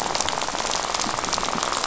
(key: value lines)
label: biophony, rattle
recorder: SoundTrap 500